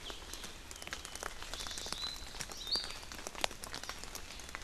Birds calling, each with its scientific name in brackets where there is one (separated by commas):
Iiwi (Drepanis coccinea)